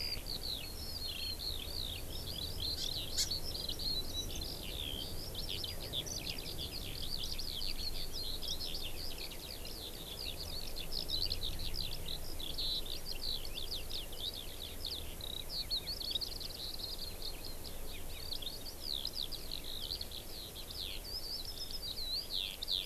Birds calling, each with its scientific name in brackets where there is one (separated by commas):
Eurasian Skylark (Alauda arvensis), Hawaii Amakihi (Chlorodrepanis virens)